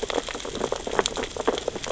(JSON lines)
{"label": "biophony, sea urchins (Echinidae)", "recorder": "SoundTrap 600 or HydroMoth"}